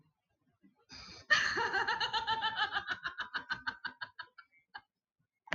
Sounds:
Laughter